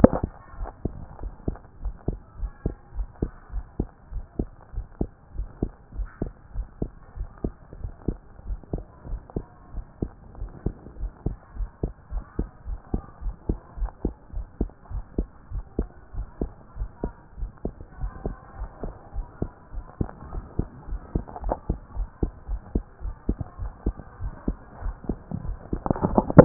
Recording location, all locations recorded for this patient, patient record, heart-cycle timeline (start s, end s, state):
tricuspid valve (TV)
aortic valve (AV)+pulmonary valve (PV)+tricuspid valve (TV)+mitral valve (MV)
#Age: Child
#Sex: Female
#Height: 129.0 cm
#Weight: 27.7 kg
#Pregnancy status: False
#Murmur: Absent
#Murmur locations: nan
#Most audible location: nan
#Systolic murmur timing: nan
#Systolic murmur shape: nan
#Systolic murmur grading: nan
#Systolic murmur pitch: nan
#Systolic murmur quality: nan
#Diastolic murmur timing: nan
#Diastolic murmur shape: nan
#Diastolic murmur grading: nan
#Diastolic murmur pitch: nan
#Diastolic murmur quality: nan
#Outcome: Abnormal
#Campaign: 2014 screening campaign
0.00	0.10	S1
0.10	0.22	systole
0.22	0.30	S2
0.30	0.58	diastole
0.58	0.70	S1
0.70	0.84	systole
0.84	0.94	S2
0.94	1.22	diastole
1.22	1.34	S1
1.34	1.46	systole
1.46	1.56	S2
1.56	1.82	diastole
1.82	1.94	S1
1.94	2.08	systole
2.08	2.18	S2
2.18	2.40	diastole
2.40	2.52	S1
2.52	2.64	systole
2.64	2.74	S2
2.74	2.96	diastole
2.96	3.08	S1
3.08	3.20	systole
3.20	3.30	S2
3.30	3.54	diastole
3.54	3.64	S1
3.64	3.78	systole
3.78	3.88	S2
3.88	4.12	diastole
4.12	4.24	S1
4.24	4.38	systole
4.38	4.48	S2
4.48	4.74	diastole
4.74	4.86	S1
4.86	5.00	systole
5.00	5.10	S2
5.10	5.36	diastole
5.36	5.48	S1
5.48	5.62	systole
5.62	5.70	S2
5.70	5.96	diastole
5.96	6.08	S1
6.08	6.22	systole
6.22	6.32	S2
6.32	6.56	diastole
6.56	6.66	S1
6.66	6.80	systole
6.80	6.90	S2
6.90	7.18	diastole
7.18	7.28	S1
7.28	7.44	systole
7.44	7.54	S2
7.54	7.80	diastole
7.80	7.92	S1
7.92	8.06	systole
8.06	8.18	S2
8.18	8.48	diastole
8.48	8.60	S1
8.60	8.72	systole
8.72	8.82	S2
8.82	9.10	diastole
9.10	9.20	S1
9.20	9.36	systole
9.36	9.46	S2
9.46	9.74	diastole
9.74	9.86	S1
9.86	10.00	systole
10.00	10.10	S2
10.10	10.40	diastole
10.40	10.50	S1
10.50	10.64	systole
10.64	10.74	S2
10.74	11.00	diastole
11.00	11.12	S1
11.12	11.26	systole
11.26	11.36	S2
11.36	11.58	diastole
11.58	11.70	S1
11.70	11.82	systole
11.82	11.92	S2
11.92	12.12	diastole
12.12	12.24	S1
12.24	12.38	systole
12.38	12.48	S2
12.48	12.68	diastole
12.68	12.80	S1
12.80	12.92	systole
12.92	13.02	S2
13.02	13.24	diastole
13.24	13.34	S1
13.34	13.48	systole
13.48	13.58	S2
13.58	13.78	diastole
13.78	13.92	S1
13.92	14.04	systole
14.04	14.14	S2
14.14	14.34	diastole
14.34	14.46	S1
14.46	14.60	systole
14.60	14.70	S2
14.70	14.92	diastole
14.92	15.04	S1
15.04	15.16	systole
15.16	15.28	S2
15.28	15.52	diastole
15.52	15.64	S1
15.64	15.78	systole
15.78	15.88	S2
15.88	16.16	diastole
16.16	16.28	S1
16.28	16.40	systole
16.40	16.50	S2
16.50	16.78	diastole
16.78	16.90	S1
16.90	17.02	systole
17.02	17.12	S2
17.12	17.40	diastole
17.40	17.50	S1
17.50	17.64	systole
17.64	17.74	S2
17.74	18.00	diastole
18.00	18.12	S1
18.12	18.26	systole
18.26	18.36	S2
18.36	18.58	diastole
18.58	18.70	S1
18.70	18.84	systole
18.84	18.94	S2
18.94	19.14	diastole
19.14	19.26	S1
19.26	19.40	systole
19.40	19.50	S2
19.50	19.74	diastole
19.74	19.86	S1
19.86	20.00	systole
20.00	20.10	S2
20.10	20.32	diastole
20.32	20.44	S1
20.44	20.58	systole
20.58	20.68	S2
20.68	20.90	diastole
20.90	21.02	S1
21.02	21.14	systole
21.14	21.24	S2
21.24	21.44	diastole
21.44	21.56	S1
21.56	21.68	systole
21.68	21.78	S2
21.78	21.96	diastole
21.96	22.08	S1
22.08	22.22	systole
22.22	22.32	S2
22.32	22.50	diastole
22.50	22.60	S1
22.60	22.74	systole
22.74	22.84	S2
22.84	23.04	diastole
23.04	23.14	S1
23.14	23.28	systole
23.28	23.38	S2
23.38	23.60	diastole
23.60	23.72	S1
23.72	23.86	systole
23.86	23.94	S2
23.94	24.22	diastole
24.22	24.34	S1
24.34	24.46	systole
24.46	24.56	S2
24.56	24.84	diastole
24.84	24.96	S1
24.96	25.08	systole
25.08	25.18	S2
25.18	25.46	diastole
25.46	25.58	S1
25.58	25.72	systole
25.72	25.82	S2
25.82	26.06	diastole
26.06	26.24	S1
26.24	26.36	systole
26.36	26.45	S2